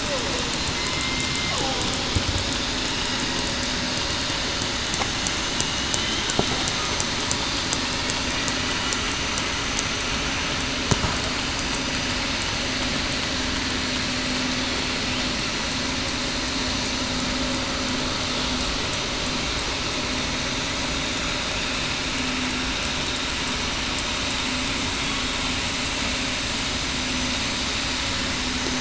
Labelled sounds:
0.7	1.6	killer whale, southern resident, 2.0 to 2.1 kHz

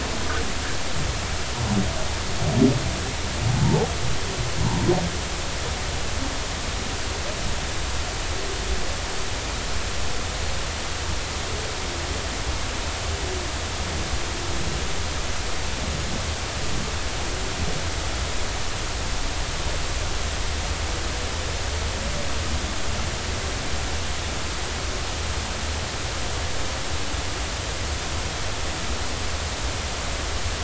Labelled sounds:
3.6	3.9	humpback whale, 0.80 to 0.96 kHz

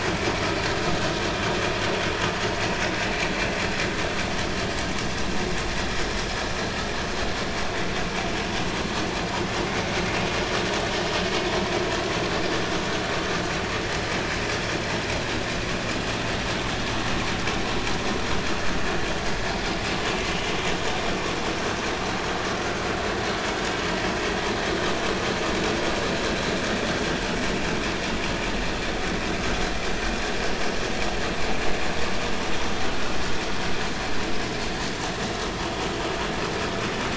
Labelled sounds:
32.9	33.2	vessel noise, 1.3 to 1.5 kHz

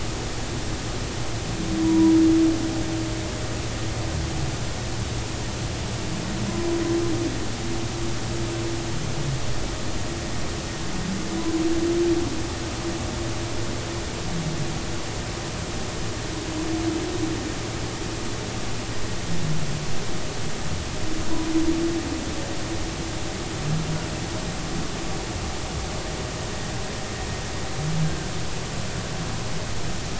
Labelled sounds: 1.8	2.1	humpback whale, 0.93 to 1.0 kHz

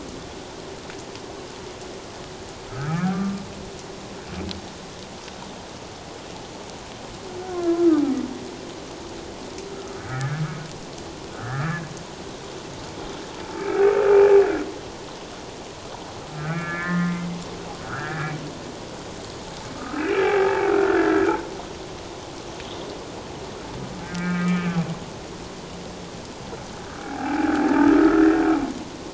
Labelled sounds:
2.7	3.4	humpback whale, 1.1 to 2.4 kHz
7.4	8.0	humpback whale, 1.1 to 1.5 kHz
10.0	10.4	humpback whale, 1.2 to 2.0 kHz
11.4	11.8	humpback whale, 1.1 to 1.8 kHz
13.6	13.8	humpback whale, 2.2 to 2.4 kHz
16.3	18.3	humpback whale, 1.0 to 2.4 kHz
19.8	21.3	humpback whale, 1.2 to 2.7 kHz
24.0	24.8	humpback whale, 1.1 to 2.5 kHz
27.0	29.1	humpback whale, 0.78 to 2.4 kHz

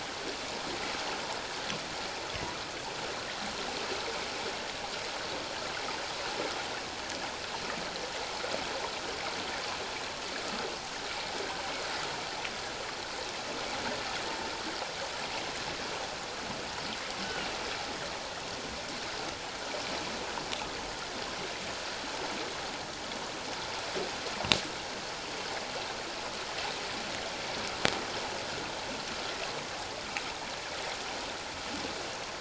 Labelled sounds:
17.2	17.5	humpback whale, 2.8 to 3.1 kHz

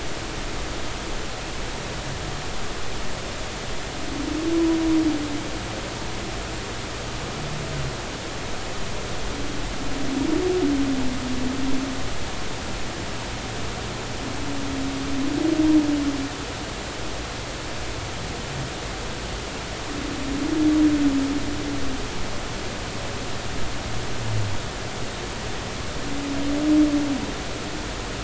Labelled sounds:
4.5	4.8	humpback whale, 0.93 to 1.0 kHz

